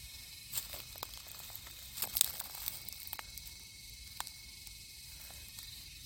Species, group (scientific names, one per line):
Psaltoda harrisii
Cicadidae